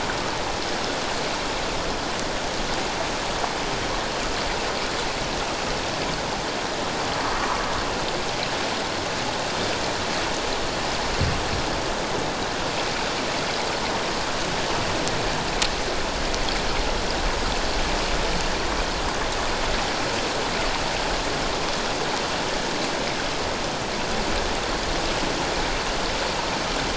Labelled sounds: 7.4	7.6	water noise, 0.94 to 1.3 kHz

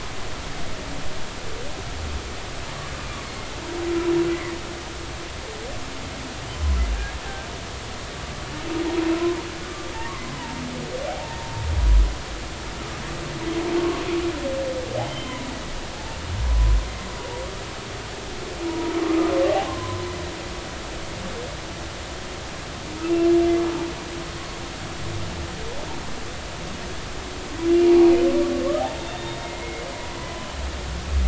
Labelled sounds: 4.3	4.6	humpback whale, 1.8 to 2.2 kHz
8.9	9.1	humpback whale, 0.83 to 1.0 kHz
9.6	9.9	humpback whale, 1.15 to 1.22 kHz
11.1	11.4	humpback whale, 0.80 to 0.96 kHz
15.1	15.4	humpback whale, 3.0 to 3.2 kHz
18.7	18.9	humpback whale, 0.90 to 0.99 kHz
19.7	20.0	humpback whale, 0.96 to 1.1 kHz
27.9	28.1	humpback whale, 0.80 to 0.99 kHz
28.8	30.5	humpback whale, 0.80 to 3.8 kHz

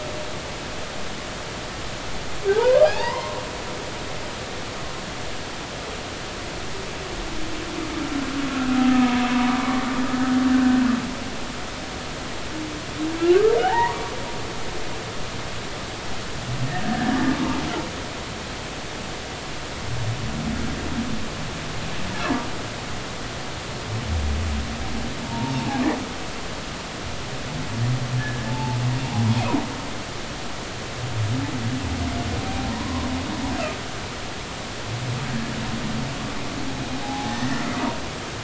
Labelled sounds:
2.5	3.4	humpback whale, 0.80 to 2.2 kHz
8.7	9.9	humpback whale, 0.90 to 1.3 kHz
10.5	10.8	humpback whale, 1.5 to 1.6 kHz
13.6	14.0	humpback whale, 0.80 to 2.1 kHz
16.8	17.2	humpback whale, 1.5 to 1.8 kHz
25.3	25.8	humpback whale, 0.80 to 0.99 kHz
28.2	28.8	humpback whale, 0.80 to 1.8 kHz
32.7	33.1	humpback whale, 0.93 to 1.1 kHz
37.0	37.6	humpback whale, 0.80 to 2.0 kHz

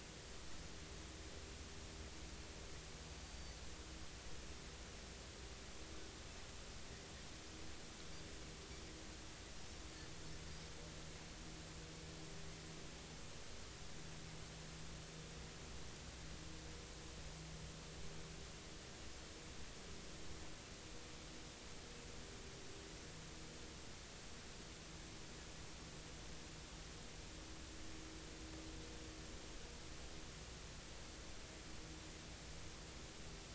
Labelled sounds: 3.2	3.6	Pacific white-sided dolphin, 4.5 to 4.7 kHz

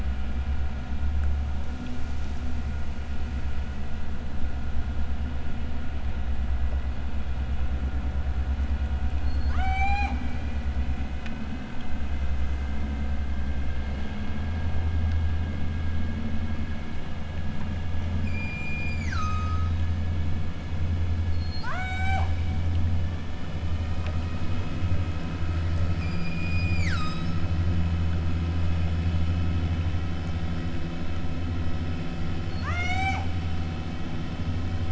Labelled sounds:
9.2	10.2	killer whale, southern Alaska resident, 0.37 to 8.0 kHz
18.2	19.7	killer whale, southern Alaska resident, 0.78 to 8.0 kHz
21.3	22.4	killer whale, southern Alaska resident, 0.47 to 8.0 kHz
25.9	27.3	killer whale, southern Alaska resident, 0.74 to 8.0 kHz
32.4	33.3	killer whale, southern Alaska resident, 0.37 to 8.0 kHz

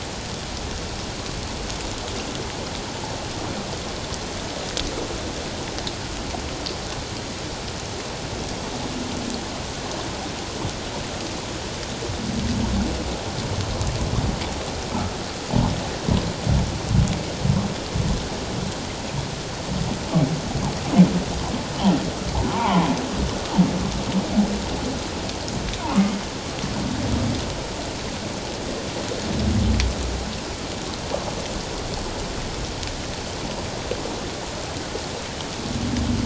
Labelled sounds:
22.5	22.9	humpback whale, 0.78 to 1.2 kHz

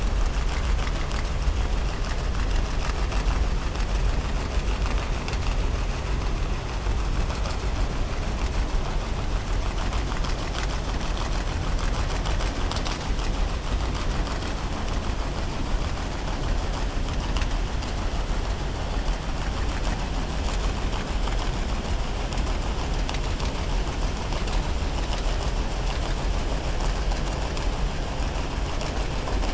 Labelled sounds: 0.4	1.3	killer whale, 1.2 to 3.8 kHz

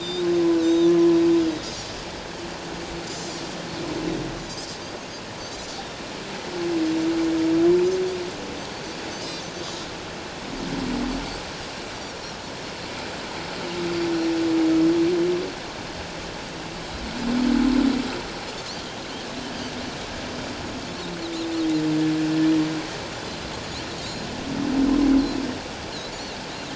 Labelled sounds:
0.0	0.9	Pacific white-sided dolphin, 3.4 to 4.1 kHz
3.1	3.4	Pacific white-sided dolphin, 4.9 to 5.1 kHz

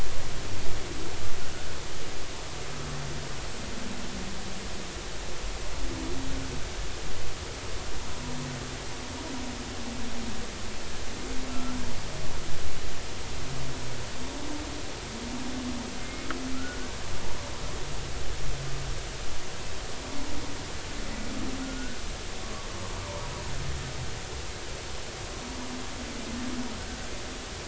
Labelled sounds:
11.5	11.9	humpback whale, 1.3 to 1.7 kHz
16.0	16.9	humpback whale, 1.3 to 2.2 kHz
21.6	22.0	humpback whale, 1.4 to 1.6 kHz

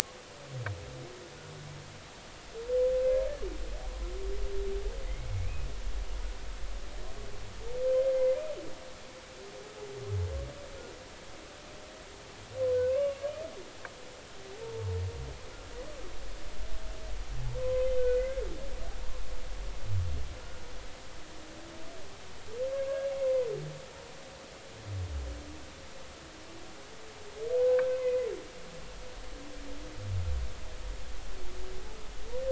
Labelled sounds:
3.0	3.3	humpback whale, 2.0 to 2.2 kHz
5.1	5.7	humpback whale, 2.0 to 2.6 kHz
8.0	8.4	humpback whale, 2.0 to 2.2 kHz
12.7	13.2	humpback whale, 0.96 to 2.9 kHz
17.6	18.4	humpback whale, 0.99 to 2.2 kHz
23.2	23.5	humpback whale, 0.96 to 2.2 kHz
27.6	28.3	humpback whale, 1.5 to 2.6 kHz

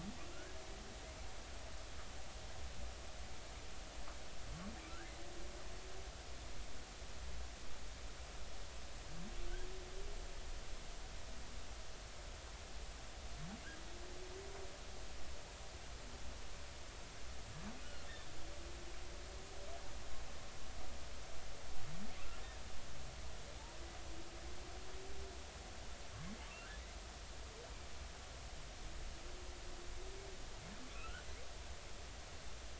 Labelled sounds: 0.3	0.6	humpback whale, 1.3 to 1.7 kHz
4.9	5.1	humpback whale, 1.3 to 1.8 kHz
17.8	18.1	humpback whale, 2.7 to 3.0 kHz
30.9	31.2	humpback whale, 1.2 to 1.6 kHz

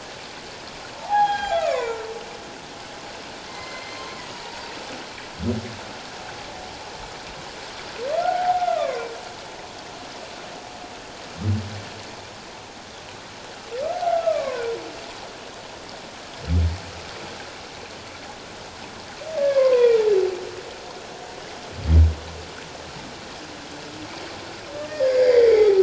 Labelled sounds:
1.1	2.1	humpback whale, 0.88 to 7.4 kHz
3.5	4.6	humpback whale, 0.81 to 6.3 kHz
8.2	9.1	humpback whale, 0.78 to 1.6 kHz
13.9	14.6	humpback whale, 0.78 to 1.5 kHz
19.4	20.0	humpback whale, 0.88 to 2.6 kHz
24.8	25.8	humpback whale, 0.78 to 5.1 kHz

